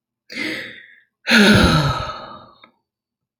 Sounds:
Sigh